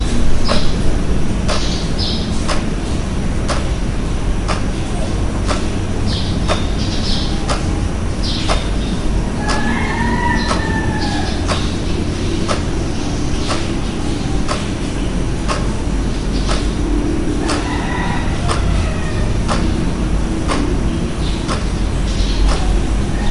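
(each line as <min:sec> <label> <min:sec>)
0:00.0 A clock is ticking rhythmically. 0:23.3
0:00.0 Birds chirping in the background. 0:23.3
0:00.0 Soft wind blowing. 0:23.3
0:09.5 A rooster crows in the background. 0:11.6
0:17.4 A rooster crows in the background. 0:19.6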